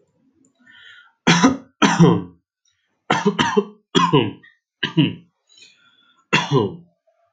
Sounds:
Cough